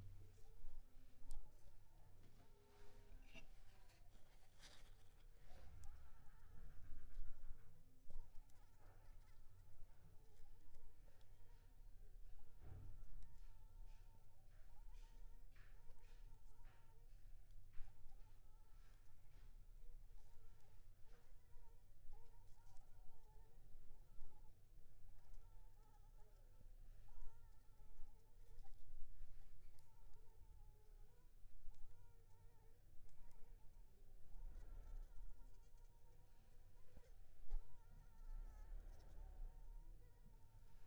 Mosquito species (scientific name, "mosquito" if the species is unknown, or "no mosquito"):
Anopheles funestus s.s.